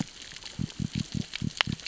{"label": "biophony", "recorder": "SoundTrap 600 or HydroMoth"}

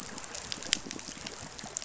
{"label": "biophony", "recorder": "SoundTrap 500"}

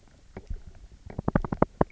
{"label": "biophony, knock", "recorder": "SoundTrap 300"}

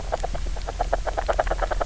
{"label": "biophony, knock croak", "recorder": "SoundTrap 300"}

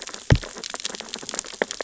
{"label": "biophony, sea urchins (Echinidae)", "recorder": "SoundTrap 600 or HydroMoth"}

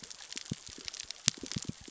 {"label": "biophony, knock", "recorder": "SoundTrap 600 or HydroMoth"}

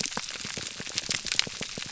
{"label": "biophony, pulse", "recorder": "SoundTrap 300"}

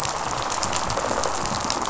{"label": "biophony, rattle response", "recorder": "SoundTrap 500"}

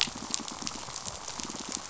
{"label": "biophony, pulse", "recorder": "SoundTrap 500"}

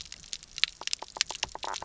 {"label": "biophony, knock croak", "recorder": "SoundTrap 300"}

